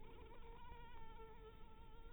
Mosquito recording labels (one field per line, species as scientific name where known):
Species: Anopheles harrisoni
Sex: female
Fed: blood-fed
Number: one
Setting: cup